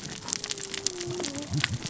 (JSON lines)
{"label": "biophony, cascading saw", "recorder": "SoundTrap 600 or HydroMoth"}